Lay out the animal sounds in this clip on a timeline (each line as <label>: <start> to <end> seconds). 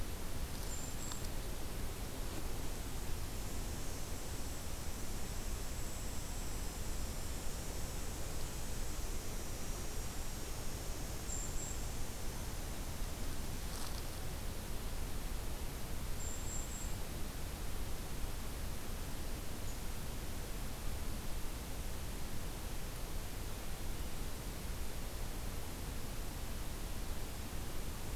Brown Creeper (Certhia americana): 0.4 to 1.4 seconds
Brown Creeper (Certhia americana): 11.1 to 12.0 seconds
Brown Creeper (Certhia americana): 16.1 to 17.1 seconds